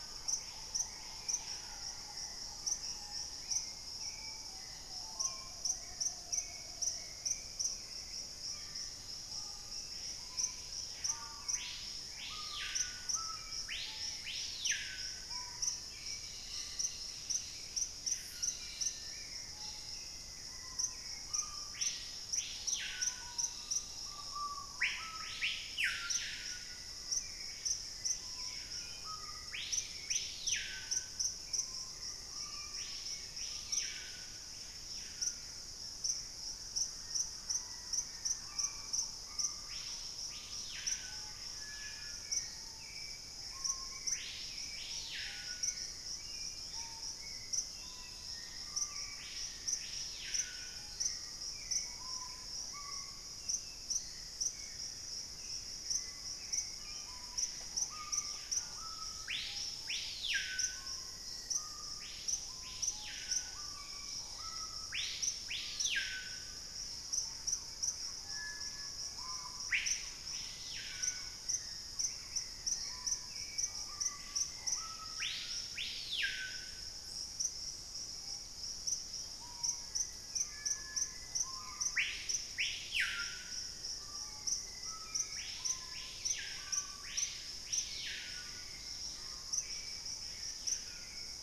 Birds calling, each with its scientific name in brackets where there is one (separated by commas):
unidentified bird, Gray Antbird (Cercomacra cinerascens), Amazonian Motmot (Momotus momota), Dusky-capped Greenlet (Pachysylvia hypoxantha), Screaming Piha (Lipaugus vociferans), Hauxwell's Thrush (Turdus hauxwelli), Thrush-like Wren (Campylorhynchus turdinus), Black-faced Antthrush (Formicarius analis)